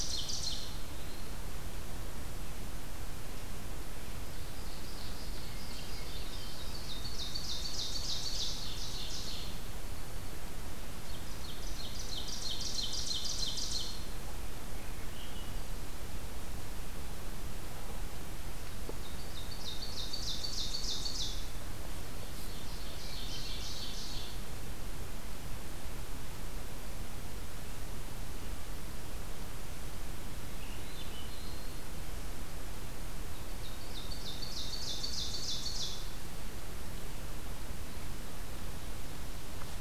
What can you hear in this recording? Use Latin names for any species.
Seiurus aurocapilla, Catharus guttatus, Catharus ustulatus